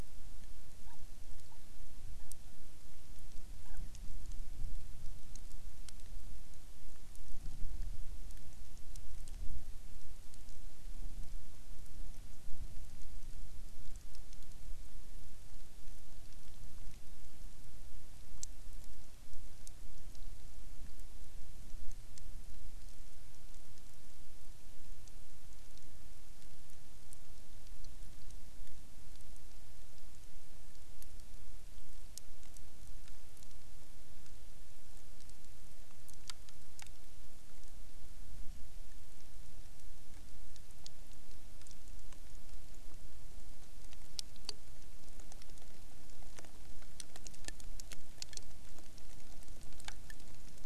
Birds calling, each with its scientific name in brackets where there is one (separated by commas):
Hawaiian Petrel (Pterodroma sandwichensis)